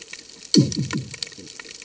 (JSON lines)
{"label": "anthrophony, bomb", "recorder": "HydroMoth"}